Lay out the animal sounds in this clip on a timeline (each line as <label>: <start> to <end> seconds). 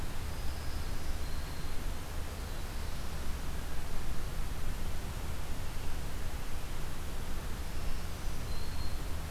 Black-throated Green Warbler (Setophaga virens): 0.0 to 1.8 seconds
Black-throated Green Warbler (Setophaga virens): 7.7 to 9.3 seconds